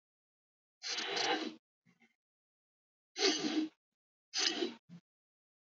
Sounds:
Sniff